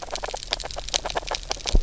{"label": "biophony, knock croak", "recorder": "SoundTrap 300"}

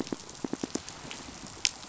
{"label": "biophony, pulse", "recorder": "SoundTrap 500"}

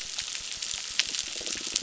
{"label": "biophony", "recorder": "SoundTrap 600"}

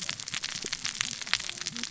{"label": "biophony, cascading saw", "recorder": "SoundTrap 600 or HydroMoth"}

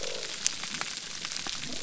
{"label": "biophony", "recorder": "SoundTrap 300"}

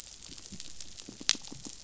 {"label": "biophony, pulse", "recorder": "SoundTrap 500"}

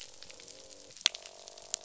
{"label": "biophony, croak", "recorder": "SoundTrap 500"}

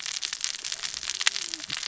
{"label": "biophony, cascading saw", "recorder": "SoundTrap 600 or HydroMoth"}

